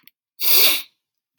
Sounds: Sniff